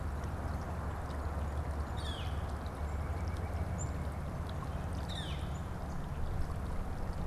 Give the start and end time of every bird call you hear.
[1.82, 2.32] Northern Flicker (Colaptes auratus)
[2.62, 4.42] White-breasted Nuthatch (Sitta carolinensis)
[3.62, 4.02] Black-capped Chickadee (Poecile atricapillus)
[4.72, 5.62] Northern Flicker (Colaptes auratus)

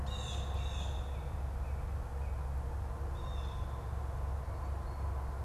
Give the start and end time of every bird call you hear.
[0.00, 1.10] Blue Jay (Cyanocitta cristata)
[0.80, 2.60] Northern Cardinal (Cardinalis cardinalis)
[3.10, 5.44] Blue Jay (Cyanocitta cristata)

